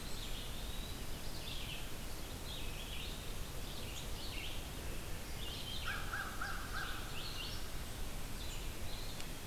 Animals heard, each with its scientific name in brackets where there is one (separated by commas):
American Crow (Corvus brachyrhynchos), Red-eyed Vireo (Vireo olivaceus), Eastern Wood-Pewee (Contopus virens)